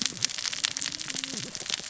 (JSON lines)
{"label": "biophony, cascading saw", "recorder": "SoundTrap 600 or HydroMoth"}